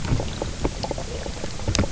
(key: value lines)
label: biophony, knock croak
recorder: SoundTrap 300